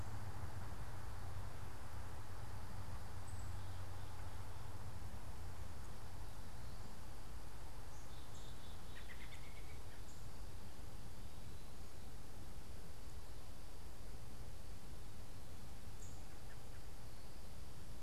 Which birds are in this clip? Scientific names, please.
Poecile atricapillus, Turdus migratorius